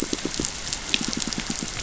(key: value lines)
label: biophony, pulse
recorder: SoundTrap 500